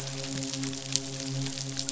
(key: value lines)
label: biophony, midshipman
recorder: SoundTrap 500